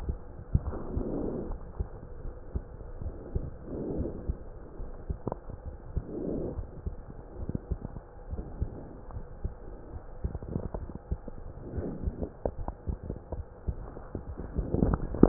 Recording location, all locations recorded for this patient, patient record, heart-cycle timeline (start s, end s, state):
aortic valve (AV)
aortic valve (AV)+pulmonary valve (PV)+tricuspid valve (TV)+mitral valve (MV)
#Age: Child
#Sex: Female
#Height: 136.0 cm
#Weight: 30.8 kg
#Pregnancy status: False
#Murmur: Absent
#Murmur locations: nan
#Most audible location: nan
#Systolic murmur timing: nan
#Systolic murmur shape: nan
#Systolic murmur grading: nan
#Systolic murmur pitch: nan
#Systolic murmur quality: nan
#Diastolic murmur timing: nan
#Diastolic murmur shape: nan
#Diastolic murmur grading: nan
#Diastolic murmur pitch: nan
#Diastolic murmur quality: nan
#Outcome: Normal
#Campaign: 2015 screening campaign
0.00	1.46	unannotated
1.46	1.60	S1
1.60	1.74	systole
1.74	1.88	S2
1.88	2.20	diastole
2.20	2.34	S1
2.34	2.50	systole
2.50	2.64	S2
2.64	2.99	diastole
2.99	3.14	S1
3.14	3.30	systole
3.30	3.48	S2
3.48	3.96	diastole
3.96	4.12	S1
4.12	4.24	systole
4.24	4.40	S2
4.40	4.75	diastole
4.75	4.92	S1
4.92	5.08	systole
5.08	5.19	S2
5.19	5.63	diastole
5.63	5.76	S1
5.76	5.92	systole
5.92	6.08	S2
6.08	6.54	diastole
6.54	6.68	S1
6.68	6.82	systole
6.82	6.96	S2
6.96	7.35	diastole
7.35	7.50	S1
7.50	7.68	systole
7.68	7.80	S2
7.80	8.27	diastole
8.27	8.46	S1
8.46	8.57	systole
8.57	8.74	S2
8.74	9.11	diastole
9.11	9.24	S1
9.24	9.40	systole
9.40	9.54	S2
9.54	9.91	diastole
9.91	10.02	S1
10.02	10.20	systole
10.20	10.32	S2
10.32	15.28	unannotated